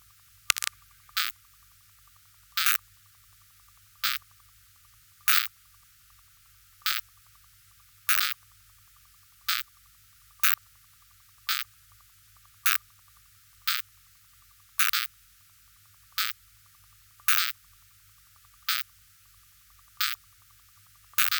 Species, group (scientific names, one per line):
Poecilimon zimmeri
Orthoptera